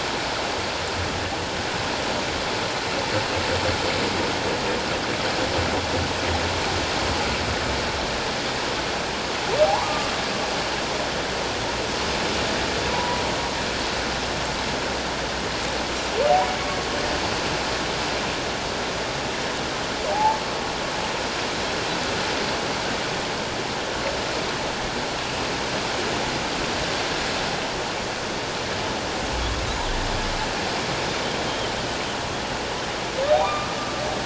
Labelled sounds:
9.7	10.1	humpback whale, 0.78 to 1.3 kHz
12.9	13.2	humpback whale, 0.78 to 1.1 kHz
20.1	20.4	humpback whale, 0.78 to 0.94 kHz
33.4	33.7	humpback whale, 1.1 to 2.5 kHz

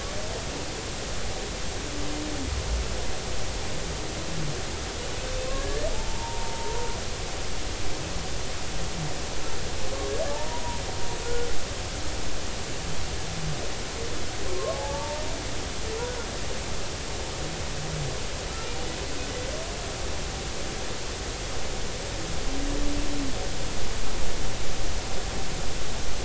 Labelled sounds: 5.5	6.9	humpback whale, 0.83 to 1.9 kHz
10.3	10.8	humpback whale, 0.80 to 1.0 kHz
11.2	11.5	humpback whale, 1.4 to 1.5 kHz
14.6	15.2	humpback whale, 0.80 to 1.2 kHz

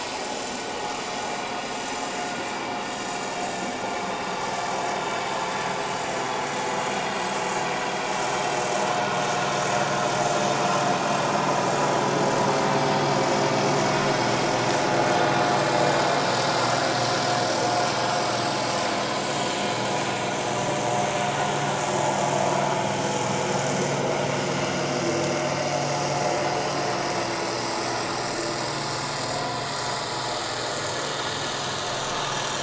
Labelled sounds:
6.7	7.4	vessel noise, 3.2 to 7.8 kHz
13.4	13.7	vessel noise, 5.1 to 5.2 kHz
18.3	18.6	vessel noise, 7.6 to 7.8 kHz
32.2	32.6	vessel noise, 5.5 to 5.8 kHz

